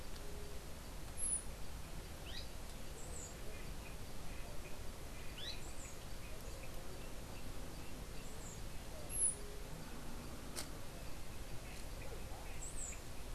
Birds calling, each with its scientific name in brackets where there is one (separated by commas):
Azara's Spinetail (Synallaxis azarae)